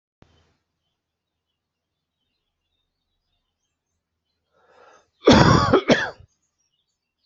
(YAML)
expert_labels:
- quality: good
  cough_type: dry
  dyspnea: false
  wheezing: false
  stridor: false
  choking: false
  congestion: false
  nothing: true
  diagnosis: healthy cough
  severity: pseudocough/healthy cough
age: 47
gender: male
respiratory_condition: false
fever_muscle_pain: true
status: symptomatic